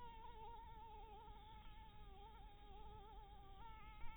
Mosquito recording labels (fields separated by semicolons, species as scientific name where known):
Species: Anopheles maculatus; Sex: female; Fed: blood-fed; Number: one; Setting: cup